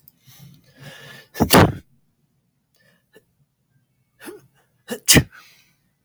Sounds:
Sneeze